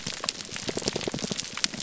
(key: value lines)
label: biophony, pulse
recorder: SoundTrap 300